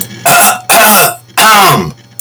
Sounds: Throat clearing